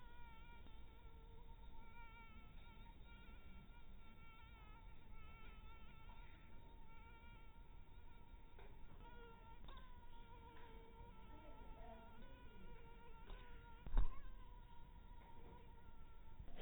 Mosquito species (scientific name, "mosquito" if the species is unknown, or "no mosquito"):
mosquito